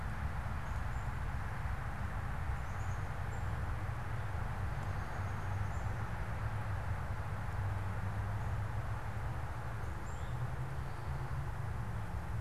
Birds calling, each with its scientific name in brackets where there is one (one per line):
Eastern Towhee (Pipilo erythrophthalmus)
unidentified bird
Downy Woodpecker (Dryobates pubescens)